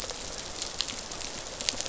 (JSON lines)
{"label": "biophony, rattle response", "recorder": "SoundTrap 500"}